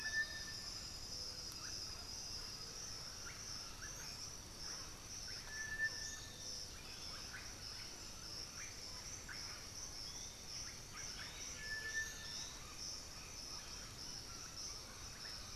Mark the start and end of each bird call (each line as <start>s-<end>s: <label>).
0.0s-0.6s: Piratic Flycatcher (Legatus leucophaius)
0.0s-15.6s: Russet-backed Oropendola (Psarocolius angustifrons)
2.1s-4.4s: Undulated Tinamou (Crypturellus undulatus)
5.9s-12.8s: Piratic Flycatcher (Legatus leucophaius)
10.6s-12.5s: White-winged Becard (Pachyramphus polychopterus)